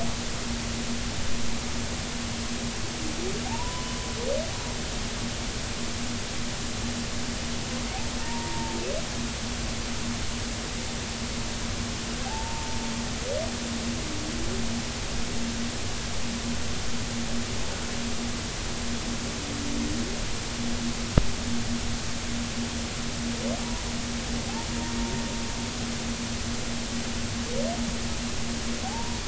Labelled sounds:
3.4	3.9	humpback whale, 0.80 to 1.1 kHz
8.2	8.8	humpback whale, 0.86 to 0.99 kHz
12.2	12.8	humpback whale, 0.80 to 0.99 kHz
24.7	24.9	humpback whale, 0.90 to 0.99 kHz
28.8	29.2	humpback whale, 0.80 to 0.99 kHz

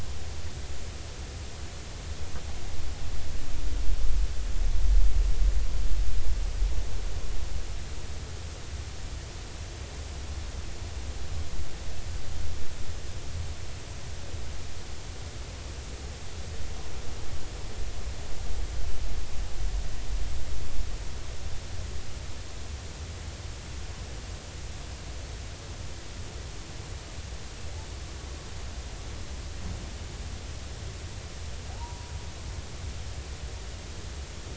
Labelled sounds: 31.7	32.1	humpback whale, 0.80 to 1.1 kHz

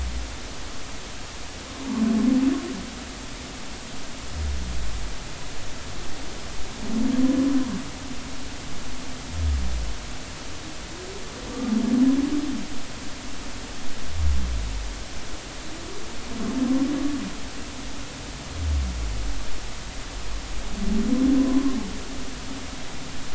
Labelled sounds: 11.5	11.8	humpback whale, 1.1 to 1.2 kHz
21.4	21.8	humpback whale, 0.99 to 1.1 kHz

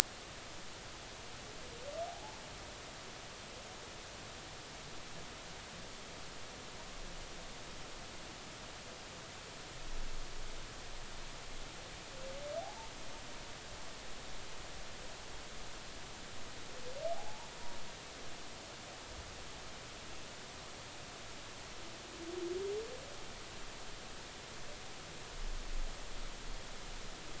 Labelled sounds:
2.1	2.4	humpback whale, 0.80 to 0.96 kHz
12.6	12.9	humpback whale, 0.80 to 0.96 kHz
17.1	17.5	humpback whale, 0.80 to 0.99 kHz

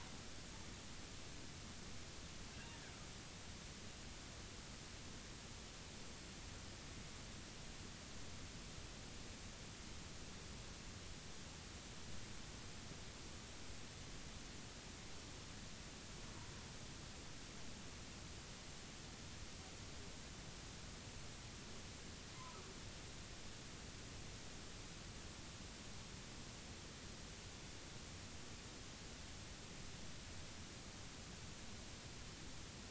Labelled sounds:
22.3	22.7	humpback whale, 0.93 to 1.3 kHz

